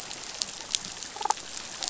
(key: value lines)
label: biophony, damselfish
recorder: SoundTrap 500